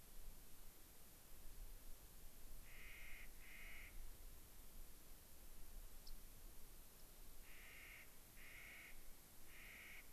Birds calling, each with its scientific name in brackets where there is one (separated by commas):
Rock Wren (Salpinctes obsoletus), Clark's Nutcracker (Nucifraga columbiana)